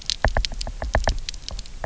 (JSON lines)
{"label": "biophony, knock", "recorder": "SoundTrap 300"}